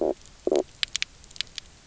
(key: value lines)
label: biophony, stridulation
recorder: SoundTrap 300